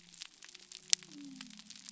{"label": "biophony", "recorder": "SoundTrap 300"}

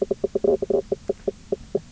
{"label": "biophony, knock croak", "recorder": "SoundTrap 300"}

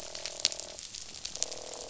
{"label": "biophony, croak", "recorder": "SoundTrap 500"}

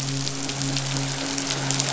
{"label": "biophony, midshipman", "recorder": "SoundTrap 500"}
{"label": "biophony", "recorder": "SoundTrap 500"}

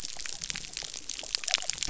{"label": "biophony", "recorder": "SoundTrap 300"}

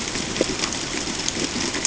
{"label": "ambient", "recorder": "HydroMoth"}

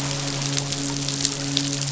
{"label": "biophony, midshipman", "recorder": "SoundTrap 500"}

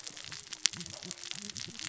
{"label": "biophony, cascading saw", "recorder": "SoundTrap 600 or HydroMoth"}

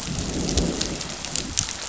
{"label": "biophony, growl", "recorder": "SoundTrap 500"}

